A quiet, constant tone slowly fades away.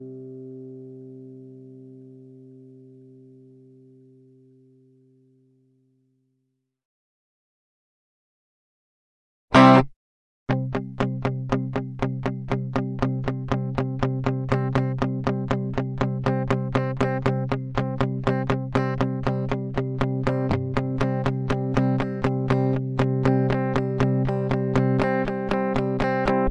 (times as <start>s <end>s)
0.0s 7.2s